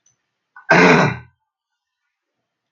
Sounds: Throat clearing